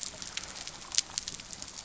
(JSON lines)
{"label": "biophony", "recorder": "SoundTrap 300"}